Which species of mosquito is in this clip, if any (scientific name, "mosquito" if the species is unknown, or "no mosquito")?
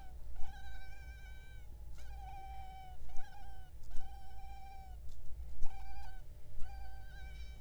Culex pipiens complex